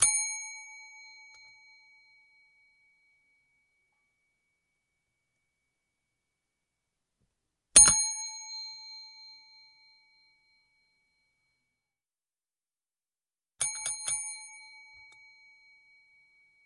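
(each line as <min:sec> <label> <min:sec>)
0:00.0 A bell rings loudly. 0:00.5
0:00.5 A bell fading away slowly. 0:07.7
0:07.7 A bell rings loudly. 0:08.3
0:08.3 A bell fading away slowly. 0:13.6
0:13.6 A bell rings several times at medium loudness. 0:14.2
0:14.2 A bell fading away slowly. 0:16.6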